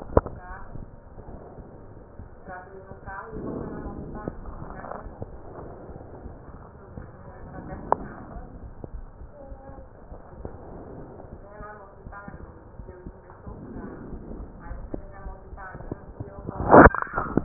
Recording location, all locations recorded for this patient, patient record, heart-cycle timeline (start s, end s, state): pulmonary valve (PV)
aortic valve (AV)+pulmonary valve (PV)+tricuspid valve (TV)+mitral valve (MV)
#Age: Child
#Sex: Female
#Height: 115.0 cm
#Weight: 26.8 kg
#Pregnancy status: False
#Murmur: Absent
#Murmur locations: nan
#Most audible location: nan
#Systolic murmur timing: nan
#Systolic murmur shape: nan
#Systolic murmur grading: nan
#Systolic murmur pitch: nan
#Systolic murmur quality: nan
#Diastolic murmur timing: nan
#Diastolic murmur shape: nan
#Diastolic murmur grading: nan
#Diastolic murmur pitch: nan
#Diastolic murmur quality: nan
#Outcome: Normal
#Campaign: 2015 screening campaign
0.00	9.16	unannotated
9.16	9.28	S2
9.28	9.46	diastole
9.46	9.59	S1
9.59	9.76	systole
9.76	9.88	S2
9.88	10.09	diastole
10.09	10.22	S1
10.22	10.40	systole
10.40	10.52	S2
10.52	10.67	diastole
10.67	11.32	unannotated
11.32	11.44	S1
11.44	11.56	systole
11.56	11.68	S2
11.68	12.04	diastole
12.04	12.16	S1
12.16	12.28	systole
12.28	12.42	S2
12.42	12.78	diastole
12.78	12.94	S1
12.94	13.04	systole
13.04	13.14	S2
13.14	13.48	diastole
13.48	13.60	S1
13.60	13.70	systole
13.70	13.84	S2
13.84	14.12	diastole
14.12	14.22	S1
14.22	14.28	systole
14.28	14.40	S2
14.40	14.66	diastole
14.66	14.84	S1
14.84	14.90	systole
14.90	14.98	S2
14.98	15.22	diastole
15.22	15.36	S1
15.36	15.48	systole
15.48	15.60	S2
15.60	15.84	diastole
15.84	16.00	S1
16.00	16.14	systole
16.14	16.28	S2
16.28	16.58	diastole
16.58	17.44	unannotated